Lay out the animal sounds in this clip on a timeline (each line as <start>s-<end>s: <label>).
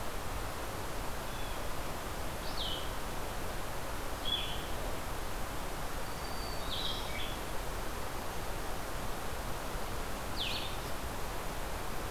0.0s-12.1s: Blue-headed Vireo (Vireo solitarius)
1.2s-1.7s: Blue Jay (Cyanocitta cristata)
6.0s-7.4s: Black-throated Green Warbler (Setophaga virens)